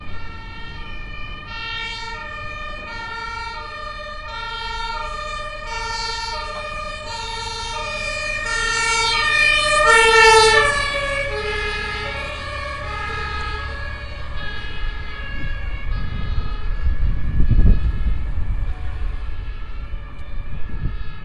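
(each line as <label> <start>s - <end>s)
A constant wind blowing in the distance. 0.0s - 14.7s
An ambulance siren gradually increases and then decreases in volume outdoors. 0.0s - 21.2s
Strong wind blowing outdoors. 14.7s - 21.2s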